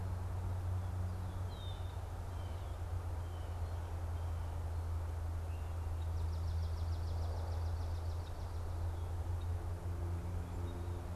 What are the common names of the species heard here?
Red-winged Blackbird, Swamp Sparrow